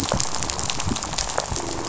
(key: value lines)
label: biophony, rattle
recorder: SoundTrap 500